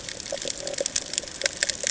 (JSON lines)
{"label": "ambient", "recorder": "HydroMoth"}